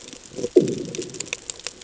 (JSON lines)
{"label": "anthrophony, bomb", "recorder": "HydroMoth"}